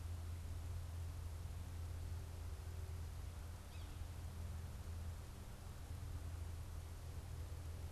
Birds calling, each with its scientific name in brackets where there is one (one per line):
Yellow-bellied Sapsucker (Sphyrapicus varius)